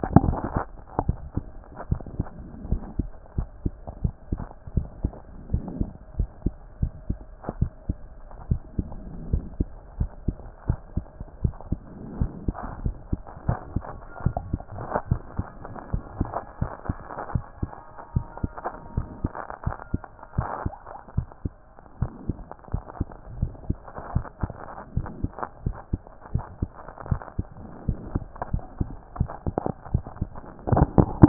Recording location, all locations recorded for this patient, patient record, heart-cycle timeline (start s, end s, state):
mitral valve (MV)
aortic valve (AV)+pulmonary valve (PV)+tricuspid valve (TV)+mitral valve (MV)
#Age: Child
#Sex: Male
#Height: 122.0 cm
#Weight: 26.1 kg
#Pregnancy status: False
#Murmur: Absent
#Murmur locations: nan
#Most audible location: nan
#Systolic murmur timing: nan
#Systolic murmur shape: nan
#Systolic murmur grading: nan
#Systolic murmur pitch: nan
#Systolic murmur quality: nan
#Diastolic murmur timing: nan
#Diastolic murmur shape: nan
#Diastolic murmur grading: nan
#Diastolic murmur pitch: nan
#Diastolic murmur quality: nan
#Outcome: Abnormal
#Campaign: 2014 screening campaign
0.00	1.90	unannotated
1.90	2.02	S1
2.02	2.18	systole
2.18	2.26	S2
2.26	2.68	diastole
2.68	2.82	S1
2.82	2.98	systole
2.98	3.08	S2
3.08	3.38	diastole
3.38	3.48	S1
3.48	3.64	systole
3.64	3.72	S2
3.72	4.02	diastole
4.02	4.14	S1
4.14	4.30	systole
4.30	4.40	S2
4.40	4.74	diastole
4.74	4.88	S1
4.88	5.02	systole
5.02	5.12	S2
5.12	5.52	diastole
5.52	5.64	S1
5.64	5.78	systole
5.78	5.90	S2
5.90	6.18	diastole
6.18	6.28	S1
6.28	6.44	systole
6.44	6.54	S2
6.54	6.80	diastole
6.80	6.92	S1
6.92	7.08	systole
7.08	7.18	S2
7.18	7.58	diastole
7.58	7.70	S1
7.70	7.88	systole
7.88	7.96	S2
7.96	8.48	diastole
8.48	8.60	S1
8.60	8.78	systole
8.78	8.88	S2
8.88	9.32	diastole
9.32	9.44	S1
9.44	9.58	systole
9.58	9.68	S2
9.68	9.98	diastole
9.98	10.10	S1
10.10	10.26	systole
10.26	10.36	S2
10.36	10.68	diastole
10.68	10.78	S1
10.78	10.96	systole
10.96	11.04	S2
11.04	11.42	diastole
11.42	11.54	S1
11.54	11.70	systole
11.70	11.80	S2
11.80	12.18	diastole
12.18	12.32	S1
12.32	12.46	systole
12.46	12.54	S2
12.54	12.84	diastole
12.84	12.96	S1
12.96	13.10	systole
13.10	13.20	S2
13.20	13.46	diastole
13.46	13.58	S1
13.58	13.74	systole
13.74	13.84	S2
13.84	14.24	diastole
14.24	14.36	S1
14.36	14.52	systole
14.52	14.62	S2
14.62	15.10	diastole
15.10	15.22	S1
15.22	15.38	systole
15.38	15.46	S2
15.46	15.92	diastole
15.92	16.04	S1
16.04	16.18	systole
16.18	16.30	S2
16.30	16.60	diastole
16.60	16.72	S1
16.72	16.88	systole
16.88	16.98	S2
16.98	17.32	diastole
17.32	17.44	S1
17.44	17.62	systole
17.62	17.70	S2
17.70	18.14	diastole
18.14	18.26	S1
18.26	18.42	systole
18.42	18.52	S2
18.52	18.96	diastole
18.96	19.08	S1
19.08	19.22	systole
19.22	19.32	S2
19.32	19.66	diastole
19.66	19.76	S1
19.76	19.92	systole
19.92	20.02	S2
20.02	20.36	diastole
20.36	20.48	S1
20.48	20.64	systole
20.64	20.74	S2
20.74	21.16	diastole
21.16	21.28	S1
21.28	21.44	systole
21.44	21.52	S2
21.52	22.00	diastole
22.00	22.12	S1
22.12	22.28	systole
22.28	22.38	S2
22.38	22.72	diastole
22.72	22.84	S1
22.84	22.98	systole
22.98	23.06	S2
23.06	23.38	diastole
23.38	23.52	S1
23.52	23.68	systole
23.68	23.78	S2
23.78	24.14	diastole
24.14	24.26	S1
24.26	24.42	systole
24.42	24.52	S2
24.52	24.96	diastole
24.96	31.28	unannotated